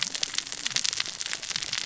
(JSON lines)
{"label": "biophony, cascading saw", "recorder": "SoundTrap 600 or HydroMoth"}